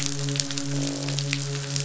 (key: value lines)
label: biophony, midshipman
recorder: SoundTrap 500

label: biophony, croak
recorder: SoundTrap 500